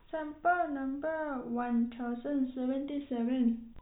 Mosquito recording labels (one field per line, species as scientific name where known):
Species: no mosquito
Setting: cup